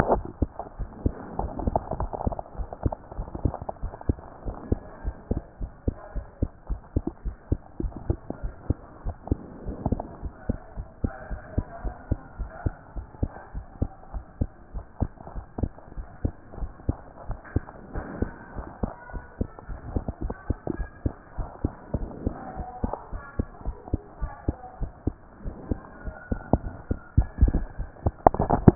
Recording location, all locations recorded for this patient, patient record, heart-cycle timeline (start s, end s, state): pulmonary valve (PV)
aortic valve (AV)+pulmonary valve (PV)+tricuspid valve (TV)+mitral valve (MV)
#Age: Child
#Sex: Female
#Height: 124.0 cm
#Weight: 29.8 kg
#Pregnancy status: False
#Murmur: Absent
#Murmur locations: nan
#Most audible location: nan
#Systolic murmur timing: nan
#Systolic murmur shape: nan
#Systolic murmur grading: nan
#Systolic murmur pitch: nan
#Systolic murmur quality: nan
#Diastolic murmur timing: nan
#Diastolic murmur shape: nan
#Diastolic murmur grading: nan
#Diastolic murmur pitch: nan
#Diastolic murmur quality: nan
#Outcome: Normal
#Campaign: 2014 screening campaign
0.00	10.22	unannotated
10.22	10.32	S1
10.32	10.48	systole
10.48	10.58	S2
10.58	10.76	diastole
10.76	10.88	S1
10.88	11.02	systole
11.02	11.12	S2
11.12	11.30	diastole
11.30	11.42	S1
11.42	11.56	systole
11.56	11.64	S2
11.64	11.84	diastole
11.84	11.94	S1
11.94	12.10	systole
12.10	12.18	S2
12.18	12.38	diastole
12.38	12.50	S1
12.50	12.64	systole
12.64	12.74	S2
12.74	12.96	diastole
12.96	13.06	S1
13.06	13.20	systole
13.20	13.30	S2
13.30	13.54	diastole
13.54	13.66	S1
13.66	13.80	systole
13.80	13.90	S2
13.90	14.14	diastole
14.14	14.24	S1
14.24	14.40	systole
14.40	14.50	S2
14.50	14.74	diastole
14.74	14.84	S1
14.84	15.00	systole
15.00	15.10	S2
15.10	15.34	diastole
15.34	15.46	S1
15.46	15.60	systole
15.60	15.70	S2
15.70	15.96	diastole
15.96	16.06	S1
16.06	16.22	systole
16.22	16.32	S2
16.32	16.60	diastole
16.60	16.70	S1
16.70	16.86	systole
16.86	16.96	S2
16.96	17.28	diastole
17.28	17.38	S1
17.38	17.54	systole
17.54	17.64	S2
17.64	17.94	diastole
17.94	18.06	S1
18.06	18.20	systole
18.20	18.30	S2
18.30	18.56	diastole
18.56	18.66	S1
18.66	18.82	systole
18.82	18.92	S2
18.92	19.12	diastole
19.12	19.24	S1
19.24	19.40	systole
19.40	19.48	S2
19.48	19.70	diastole
19.70	19.80	S1
19.80	19.94	systole
19.94	20.02	S2
20.02	20.22	diastole
20.22	20.34	S1
20.34	20.48	systole
20.48	20.56	S2
20.56	20.78	diastole
20.78	20.88	S1
20.88	21.04	systole
21.04	21.14	S2
21.14	21.38	diastole
21.38	21.48	S1
21.48	21.62	systole
21.62	21.72	S2
21.72	21.96	diastole
21.96	22.08	S1
22.08	22.24	systole
22.24	22.34	S2
22.34	22.56	diastole
22.56	22.68	S1
22.68	22.82	systole
22.82	22.94	S2
22.94	23.12	diastole
23.12	23.22	S1
23.22	23.38	systole
23.38	23.46	S2
23.46	23.66	diastole
23.66	23.76	S1
23.76	23.92	systole
23.92	24.00	S2
24.00	24.20	diastole
24.20	24.32	S1
24.32	24.46	systole
24.46	24.56	S2
24.56	24.80	diastole
24.80	24.92	S1
24.92	25.06	systole
25.06	25.14	S2
25.14	25.44	diastole
25.44	25.54	S1
25.54	25.70	systole
25.70	25.80	S2
25.80	26.06	diastole
26.06	28.75	unannotated